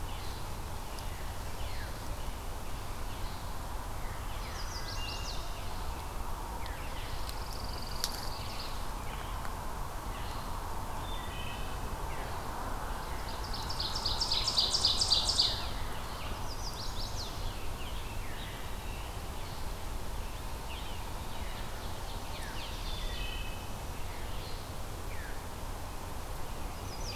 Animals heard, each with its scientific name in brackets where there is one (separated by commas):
Red-eyed Vireo (Vireo olivaceus), Chestnut-sided Warbler (Setophaga pensylvanica), Pine Warbler (Setophaga pinus), Ovenbird (Seiurus aurocapilla), Wood Thrush (Hylocichla mustelina), American Robin (Turdus migratorius)